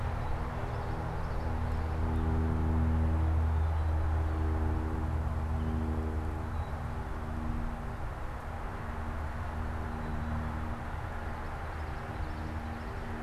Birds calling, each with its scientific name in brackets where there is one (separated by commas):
Common Yellowthroat (Geothlypis trichas), Black-capped Chickadee (Poecile atricapillus)